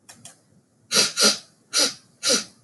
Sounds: Sniff